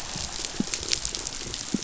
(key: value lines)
label: biophony
recorder: SoundTrap 500